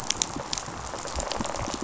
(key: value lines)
label: biophony, rattle response
recorder: SoundTrap 500